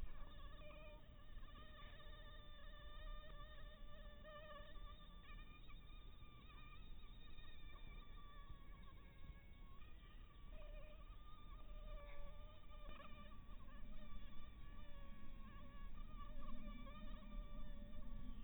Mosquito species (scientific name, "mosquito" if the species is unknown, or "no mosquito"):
mosquito